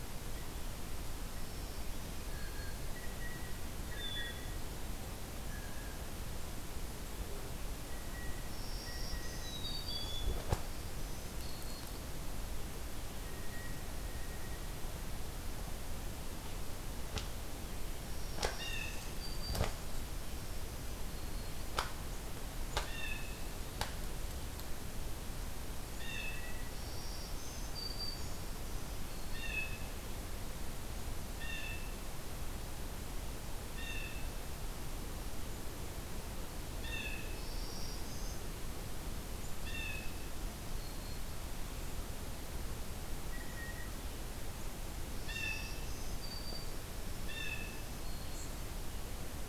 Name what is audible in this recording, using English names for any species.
Black-throated Green Warbler, Blue Jay, Black-capped Chickadee